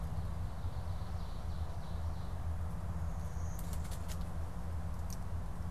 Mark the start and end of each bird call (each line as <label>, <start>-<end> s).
Ovenbird (Seiurus aurocapilla), 0.0-2.5 s
Blue-winged Warbler (Vermivora cyanoptera), 2.8-4.6 s